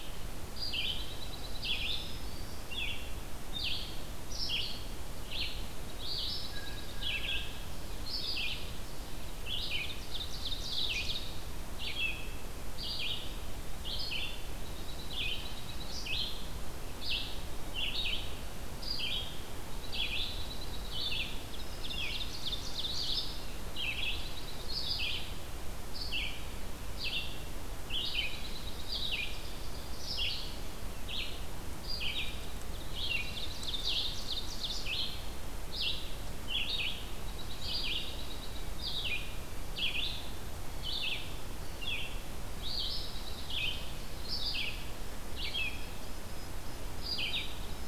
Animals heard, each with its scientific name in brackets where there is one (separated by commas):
Black-throated Green Warbler (Setophaga virens), Red-eyed Vireo (Vireo olivaceus), Ovenbird (Seiurus aurocapilla), Blue Jay (Cyanocitta cristata), Dark-eyed Junco (Junco hyemalis)